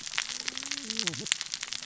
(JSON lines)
{"label": "biophony, cascading saw", "recorder": "SoundTrap 600 or HydroMoth"}